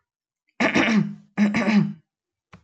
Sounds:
Cough